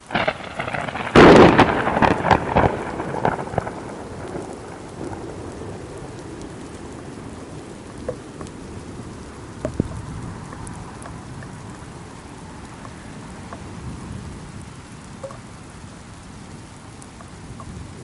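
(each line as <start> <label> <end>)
0.1 Thunder sounds followed by a loud lightning strike. 4.2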